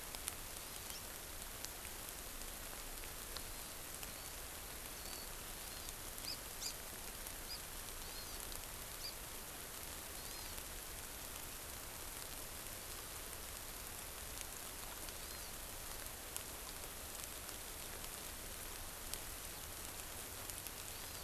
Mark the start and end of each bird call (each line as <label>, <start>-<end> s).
Warbling White-eye (Zosterops japonicus), 4.0-4.3 s
Warbling White-eye (Zosterops japonicus), 4.9-5.2 s
Hawaii Amakihi (Chlorodrepanis virens), 6.2-6.7 s
Hawaii Amakihi (Chlorodrepanis virens), 8.0-8.4 s
Hawaii Amakihi (Chlorodrepanis virens), 10.2-10.6 s